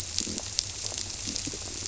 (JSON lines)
{"label": "biophony", "recorder": "SoundTrap 300"}